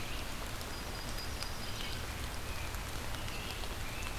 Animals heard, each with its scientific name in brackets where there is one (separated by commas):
Red-eyed Vireo (Vireo olivaceus), American Robin (Turdus migratorius), Yellow-rumped Warbler (Setophaga coronata)